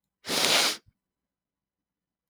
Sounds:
Sniff